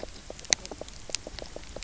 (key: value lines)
label: biophony, knock croak
recorder: SoundTrap 300